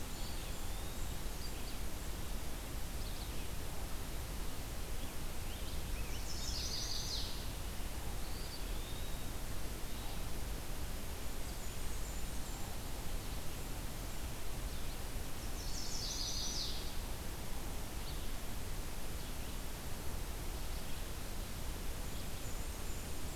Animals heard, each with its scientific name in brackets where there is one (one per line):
Eastern Wood-Pewee (Contopus virens)
Chestnut-sided Warbler (Setophaga pensylvanica)
Red-eyed Vireo (Vireo olivaceus)
Blackburnian Warbler (Setophaga fusca)